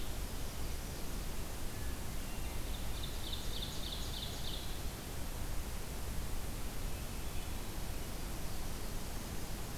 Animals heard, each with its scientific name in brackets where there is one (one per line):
Hermit Thrush (Catharus guttatus)
Ovenbird (Seiurus aurocapilla)
Blackburnian Warbler (Setophaga fusca)